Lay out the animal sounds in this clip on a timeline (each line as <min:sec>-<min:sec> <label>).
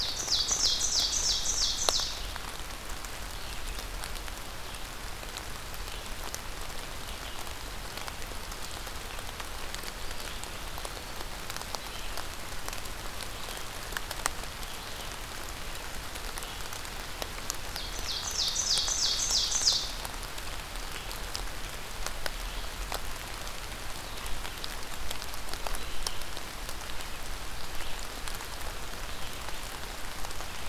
0:00.0-0:02.2 Ovenbird (Seiurus aurocapilla)
0:00.0-0:15.2 Red-eyed Vireo (Vireo olivaceus)
0:09.8-0:11.3 Eastern Wood-Pewee (Contopus virens)
0:16.3-0:30.7 Red-eyed Vireo (Vireo olivaceus)
0:17.5-0:20.1 Ovenbird (Seiurus aurocapilla)